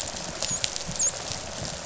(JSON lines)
{"label": "biophony, dolphin", "recorder": "SoundTrap 500"}